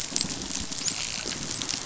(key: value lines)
label: biophony, dolphin
recorder: SoundTrap 500